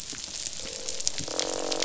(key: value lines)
label: biophony, croak
recorder: SoundTrap 500